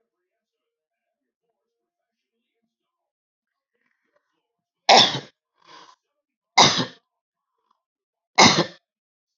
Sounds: Cough